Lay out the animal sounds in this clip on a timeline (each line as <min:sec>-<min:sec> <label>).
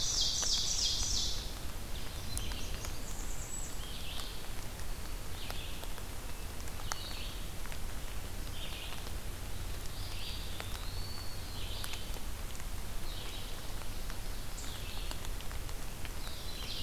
0:00.0-0:01.5 Ovenbird (Seiurus aurocapilla)
0:00.0-0:04.4 Red-eyed Vireo (Vireo olivaceus)
0:02.1-0:03.9 Blackburnian Warbler (Setophaga fusca)
0:05.0-0:16.8 Red-eyed Vireo (Vireo olivaceus)
0:10.0-0:11.6 Eastern Wood-Pewee (Contopus virens)